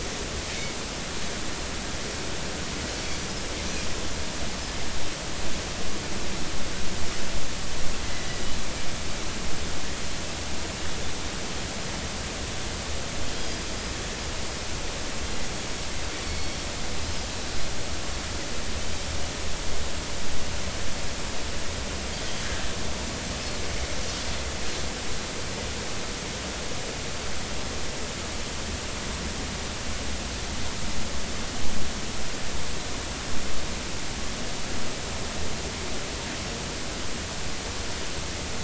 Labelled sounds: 3.0	3.2	Pacific white-sided dolphin, 4.4 to 4.6 kHz
13.4	13.7	Pacific white-sided dolphin, 4.8 to 5.1 kHz
16.2	16.6	Pacific white-sided dolphin, 2.1 to 4.5 kHz

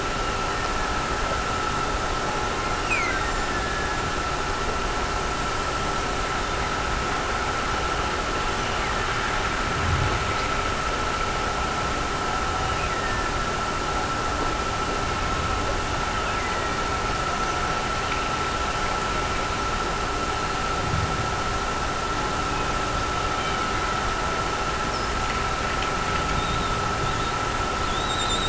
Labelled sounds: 0.0	1.0	killer whale, Bigg's (transient), Gulf of Alaska transient, 1.5 to 3.0 kHz
2.5	4.4	killer whale, Bigg's (transient), Gulf of Alaska transient, 1.6 to 7.8 kHz
8.3	9.3	killer whale, Bigg's (transient), Gulf of Alaska transient, 1.5 to 3.1 kHz
12.5	13.6	killer whale, Bigg's (transient), Gulf of Alaska transient, 1.5 to 3.1 kHz
16.0	16.8	killer whale, Bigg's (transient), Gulf of Alaska transient, 1.7 to 3.1 kHz

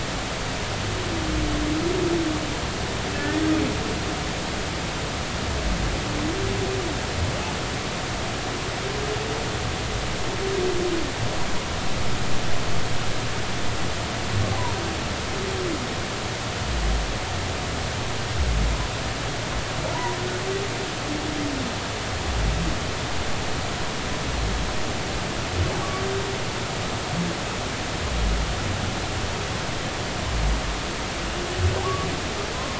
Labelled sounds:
3.1	3.4	humpback whale, 1.7 to 1.9 kHz

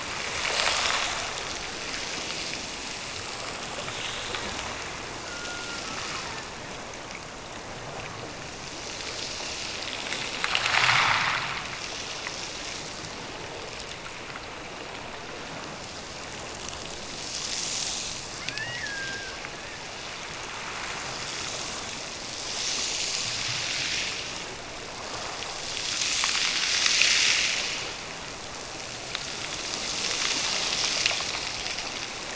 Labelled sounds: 5.2	6.5	killer whale, Bigg's (transient), Gulf of Alaska transient, 0.71 to 1.6 kHz
18.4	19.5	killer whale, Bigg's (transient), Gulf of Alaska transient, 1.4 to 3.0 kHz

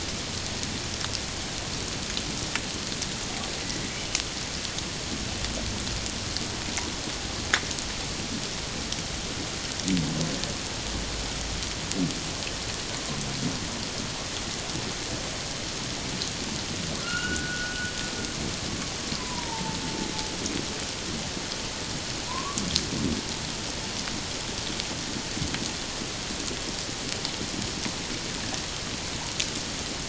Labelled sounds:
17.0	17.8	humpback whale, 1.3 to 3.0 kHz
19.2	19.8	humpback whale, 0.84 to 1.1 kHz
22.3	22.6	humpback whale, 0.94 to 1.2 kHz

